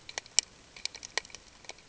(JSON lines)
{"label": "ambient", "recorder": "HydroMoth"}